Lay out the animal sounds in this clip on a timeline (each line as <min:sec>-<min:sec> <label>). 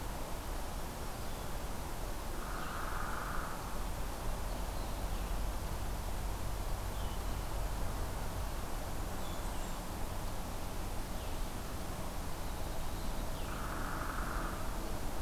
0:00.0-0:13.8 Blue-headed Vireo (Vireo solitarius)
0:02.3-0:03.8 Hairy Woodpecker (Dryobates villosus)
0:08.7-0:10.0 Blackburnian Warbler (Setophaga fusca)
0:13.3-0:14.7 Hairy Woodpecker (Dryobates villosus)